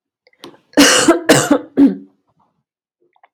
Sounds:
Cough